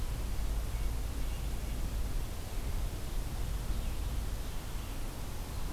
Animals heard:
forest ambience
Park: Marsh-Billings-Rockefeller National Historical Park